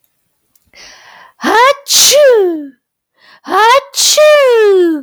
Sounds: Sneeze